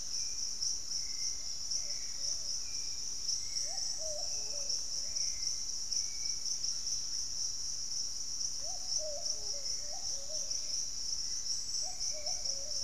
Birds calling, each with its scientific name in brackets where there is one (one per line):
unidentified bird
Hauxwell's Thrush (Turdus hauxwelli)
Yellow-margined Flycatcher (Tolmomyias assimilis)